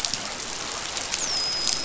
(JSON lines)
{"label": "biophony, dolphin", "recorder": "SoundTrap 500"}